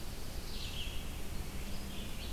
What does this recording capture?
Black-throated Blue Warbler, Red-eyed Vireo